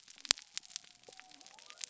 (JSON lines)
{"label": "biophony", "recorder": "SoundTrap 300"}